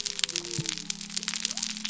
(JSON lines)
{"label": "biophony", "recorder": "SoundTrap 300"}